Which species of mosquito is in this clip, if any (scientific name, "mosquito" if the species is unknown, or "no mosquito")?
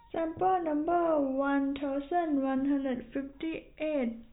no mosquito